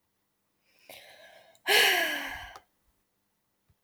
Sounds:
Sigh